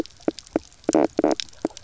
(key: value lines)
label: biophony, knock croak
recorder: SoundTrap 300